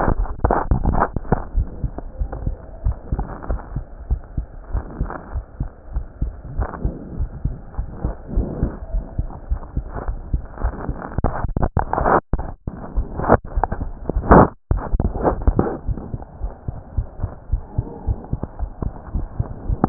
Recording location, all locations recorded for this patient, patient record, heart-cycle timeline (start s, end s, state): tricuspid valve (TV)
pulmonary valve (PV)+tricuspid valve (TV)+mitral valve (MV)
#Age: Adolescent
#Sex: Male
#Height: 149.0 cm
#Weight: 31.7 kg
#Pregnancy status: False
#Murmur: Unknown
#Murmur locations: nan
#Most audible location: nan
#Systolic murmur timing: nan
#Systolic murmur shape: nan
#Systolic murmur grading: nan
#Systolic murmur pitch: nan
#Systolic murmur quality: nan
#Diastolic murmur timing: nan
#Diastolic murmur shape: nan
#Diastolic murmur grading: nan
#Diastolic murmur pitch: nan
#Diastolic murmur quality: nan
#Outcome: Normal
#Campaign: 2015 screening campaign
0.00	2.47	unannotated
2.47	2.58	S2
2.58	2.84	diastole
2.84	2.98	S1
2.98	3.12	systole
3.12	3.28	S2
3.28	3.48	diastole
3.48	3.62	S1
3.62	3.74	systole
3.74	3.86	S2
3.86	4.08	diastole
4.08	4.22	S1
4.22	4.36	systole
4.36	4.48	S2
4.48	4.72	diastole
4.72	4.86	S1
4.86	4.98	systole
4.98	5.12	S2
5.12	5.32	diastole
5.32	5.44	S1
5.44	5.58	systole
5.58	5.70	S2
5.70	5.94	diastole
5.94	6.06	S1
6.06	6.20	systole
6.20	6.34	S2
6.34	6.56	diastole
6.56	6.68	S1
6.68	6.82	systole
6.82	6.96	S2
6.96	7.18	diastole
7.18	7.30	S1
7.30	7.42	systole
7.42	7.54	S2
7.54	7.76	diastole
7.76	7.90	S1
7.90	8.02	systole
8.02	8.16	S2
8.16	8.34	diastole
8.34	8.48	S1
8.48	8.60	systole
8.60	8.74	S2
8.74	8.92	diastole
8.92	9.04	S1
9.04	9.17	systole
9.17	9.29	S2
9.29	9.50	diastole
9.50	9.60	S1
9.60	9.76	systole
9.76	9.88	S2
9.88	10.06	diastole
10.06	10.20	S1
10.20	10.32	systole
10.32	10.42	S2
10.42	10.62	diastole
10.62	10.74	S1
10.74	10.84	systole
10.84	10.96	S2
10.96	11.16	diastole
11.16	19.89	unannotated